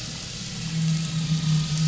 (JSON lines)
{"label": "anthrophony, boat engine", "recorder": "SoundTrap 500"}